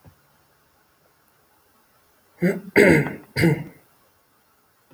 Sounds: Throat clearing